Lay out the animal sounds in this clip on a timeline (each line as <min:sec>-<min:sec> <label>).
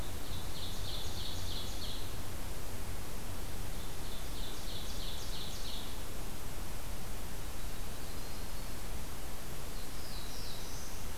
0:00.0-0:02.3 Ovenbird (Seiurus aurocapilla)
0:03.7-0:06.0 Ovenbird (Seiurus aurocapilla)
0:07.3-0:08.9 Yellow-rumped Warbler (Setophaga coronata)
0:09.6-0:11.2 Black-throated Blue Warbler (Setophaga caerulescens)